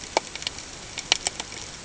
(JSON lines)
{"label": "ambient", "recorder": "HydroMoth"}